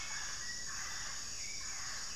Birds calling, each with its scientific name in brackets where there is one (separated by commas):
Hauxwell's Thrush (Turdus hauxwelli), Plumbeous Pigeon (Patagioenas plumbea)